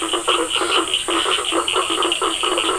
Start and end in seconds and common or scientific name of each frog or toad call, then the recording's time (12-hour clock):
0.0	2.7	Bischoff's tree frog
0.0	2.7	blacksmith tree frog
0.0	2.7	Cochran's lime tree frog
0.4	1.6	Scinax perereca
7:45pm